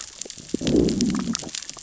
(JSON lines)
{"label": "biophony, growl", "recorder": "SoundTrap 600 or HydroMoth"}